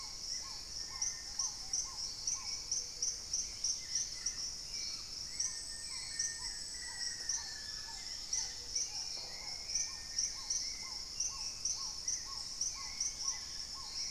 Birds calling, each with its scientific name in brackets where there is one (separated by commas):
Gray-fronted Dove (Leptotila rufaxilla), Little Tinamou (Crypturellus soui), Black-faced Antthrush (Formicarius analis), Ruddy Pigeon (Patagioenas subvinacea), Dusky-capped Greenlet (Pachysylvia hypoxantha), Red-necked Woodpecker (Campephilus rubricollis), Black-tailed Trogon (Trogon melanurus), Hauxwell's Thrush (Turdus hauxwelli)